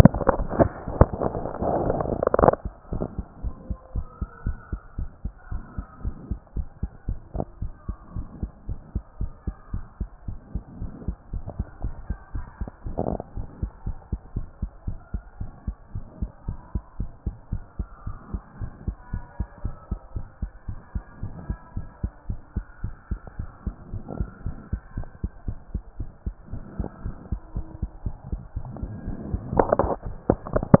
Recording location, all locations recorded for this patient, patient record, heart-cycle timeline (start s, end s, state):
mitral valve (MV)
pulmonary valve (PV)+tricuspid valve (TV)+mitral valve (MV)
#Age: nan
#Sex: Female
#Height: nan
#Weight: nan
#Pregnancy status: True
#Murmur: Absent
#Murmur locations: nan
#Most audible location: nan
#Systolic murmur timing: nan
#Systolic murmur shape: nan
#Systolic murmur grading: nan
#Systolic murmur pitch: nan
#Systolic murmur quality: nan
#Diastolic murmur timing: nan
#Diastolic murmur shape: nan
#Diastolic murmur grading: nan
#Diastolic murmur pitch: nan
#Diastolic murmur quality: nan
#Outcome: Normal
#Campaign: 2014 screening campaign
0.00	0.10	S1
0.10	0.16	systole
0.16	0.20	S2
0.20	0.34	diastole
0.34	0.46	S1
0.46	0.58	systole
0.58	0.70	S2
0.70	0.96	diastole
0.96	1.08	S1
1.08	1.22	systole
1.22	1.40	S2
1.40	1.80	diastole
1.80	1.96	S1
1.96	2.08	systole
2.08	2.18	S2
2.18	2.38	diastole
2.38	2.54	S1
2.54	2.64	systole
2.64	2.72	S2
2.72	2.92	diastole
2.92	3.06	S1
3.06	3.16	systole
3.16	3.26	S2
3.26	3.42	diastole
3.42	3.54	S1
3.54	3.68	systole
3.68	3.78	S2
3.78	3.94	diastole
3.94	4.06	S1
4.06	4.20	systole
4.20	4.28	S2
4.28	4.44	diastole
4.44	4.56	S1
4.56	4.72	systole
4.72	4.80	S2
4.80	4.98	diastole
4.98	5.10	S1
5.10	5.24	systole
5.24	5.32	S2
5.32	5.52	diastole
5.52	5.62	S1
5.62	5.76	systole
5.76	5.86	S2
5.86	6.04	diastole
6.04	6.14	S1
6.14	6.30	systole
6.30	6.38	S2
6.38	6.56	diastole
6.56	6.66	S1
6.66	6.82	systole
6.82	6.90	S2
6.90	7.08	diastole
7.08	7.18	S1
7.18	7.34	systole
7.34	7.44	S2
7.44	7.62	diastole
7.62	7.72	S1
7.72	7.88	systole
7.88	7.96	S2
7.96	8.14	diastole
8.14	8.26	S1
8.26	8.40	systole
8.40	8.50	S2
8.50	8.68	diastole
8.68	8.78	S1
8.78	8.94	systole
8.94	9.02	S2
9.02	9.20	diastole
9.20	9.30	S1
9.30	9.46	systole
9.46	9.54	S2
9.54	9.72	diastole
9.72	9.84	S1
9.84	10.00	systole
10.00	10.08	S2
10.08	10.28	diastole
10.28	10.38	S1
10.38	10.54	systole
10.54	10.62	S2
10.62	10.80	diastole
10.80	10.92	S1
10.92	11.06	systole
11.06	11.16	S2
11.16	11.32	diastole
11.32	11.44	S1
11.44	11.58	systole
11.58	11.66	S2
11.66	11.82	diastole
11.82	11.94	S1
11.94	12.08	systole
12.08	12.18	S2
12.18	12.34	diastole
12.34	12.46	S1
12.46	12.60	systole
12.60	12.70	S2
12.70	12.86	diastole
12.86	12.96	S1
12.96	13.08	systole
13.08	13.18	S2
13.18	13.36	diastole
13.36	13.46	S1
13.46	13.60	systole
13.60	13.70	S2
13.70	13.86	diastole
13.86	13.96	S1
13.96	14.10	systole
14.10	14.20	S2
14.20	14.34	diastole
14.34	14.46	S1
14.46	14.60	systole
14.60	14.70	S2
14.70	14.86	diastole
14.86	14.98	S1
14.98	15.12	systole
15.12	15.22	S2
15.22	15.40	diastole
15.40	15.50	S1
15.50	15.66	systole
15.66	15.76	S2
15.76	15.94	diastole
15.94	16.04	S1
16.04	16.20	systole
16.20	16.30	S2
16.30	16.46	diastole
16.46	16.58	S1
16.58	16.74	systole
16.74	16.82	S2
16.82	16.98	diastole
16.98	17.10	S1
17.10	17.26	systole
17.26	17.34	S2
17.34	17.52	diastole
17.52	17.62	S1
17.62	17.78	systole
17.78	17.88	S2
17.88	18.06	diastole
18.06	18.16	S1
18.16	18.32	systole
18.32	18.42	S2
18.42	18.60	diastole
18.60	18.70	S1
18.70	18.86	systole
18.86	18.96	S2
18.96	19.12	diastole
19.12	19.24	S1
19.24	19.38	systole
19.38	19.48	S2
19.48	19.64	diastole
19.64	19.74	S1
19.74	19.90	systole
19.90	20.00	S2
20.00	20.14	diastole
20.14	20.26	S1
20.26	20.42	systole
20.42	20.50	S2
20.50	20.68	diastole
20.68	20.78	S1
20.78	20.94	systole
20.94	21.04	S2
21.04	21.22	diastole
21.22	21.34	S1
21.34	21.48	systole
21.48	21.58	S2
21.58	21.76	diastole
21.76	21.86	S1
21.86	22.02	systole
22.02	22.12	S2
22.12	22.28	diastole
22.28	22.40	S1
22.40	22.56	systole
22.56	22.64	S2
22.64	22.82	diastole
22.82	22.94	S1
22.94	23.10	systole
23.10	23.20	S2
23.20	23.38	diastole
23.38	23.50	S1
23.50	23.66	systole
23.66	23.74	S2
23.74	23.92	diastole
23.92	24.04	S1
24.04	24.18	systole
24.18	24.28	S2
24.28	24.44	diastole
24.44	24.56	S1
24.56	24.72	systole
24.72	24.80	S2
24.80	24.96	diastole
24.96	25.06	S1
25.06	25.22	systole
25.22	25.30	S2
25.30	25.46	diastole
25.46	25.56	S1
25.56	25.72	systole
25.72	25.82	S2
25.82	25.98	diastole
25.98	26.10	S1
26.10	26.26	systole
26.26	26.34	S2
26.34	26.52	diastole
26.52	26.64	S1
26.64	26.78	systole
26.78	26.88	S2
26.88	27.04	diastole
27.04	27.14	S1
27.14	27.30	systole
27.30	27.40	S2
27.40	27.56	diastole
27.56	27.66	S1
27.66	27.80	systole
27.80	27.90	S2
27.90	28.06	diastole
28.06	28.16	S1
28.16	28.30	systole
28.30	28.42	S2
28.42	28.68	diastole
28.68	28.70	S1
28.70	28.82	systole
28.82	28.92	S2
28.92	29.06	diastole
29.06	29.16	S1
29.16	29.30	systole
29.30	29.38	S2
29.38	29.40	diastole
29.40	29.42	S1
29.42	29.52	systole
29.52	29.66	S2
29.66	29.80	diastole
29.80	29.92	S1
29.92	30.04	systole
30.04	30.12	S2
30.12	30.14	diastole
30.14	30.16	S1
30.16	30.28	systole
30.28	30.36	S2
30.36	30.54	diastole
30.54	30.64	S1
30.64	30.74	systole
30.74	30.80	S2